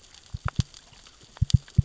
{"label": "biophony, knock", "recorder": "SoundTrap 600 or HydroMoth"}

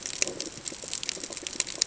{"label": "ambient", "recorder": "HydroMoth"}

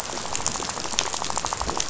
{"label": "biophony, rattle", "recorder": "SoundTrap 500"}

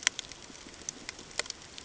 {"label": "ambient", "recorder": "HydroMoth"}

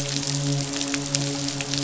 {"label": "biophony, midshipman", "recorder": "SoundTrap 500"}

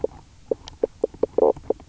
{"label": "biophony, knock croak", "recorder": "SoundTrap 300"}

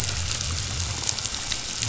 {"label": "biophony", "recorder": "SoundTrap 500"}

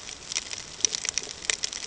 {"label": "ambient", "recorder": "HydroMoth"}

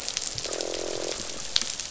{"label": "biophony, croak", "recorder": "SoundTrap 500"}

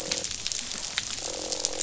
{"label": "biophony, croak", "recorder": "SoundTrap 500"}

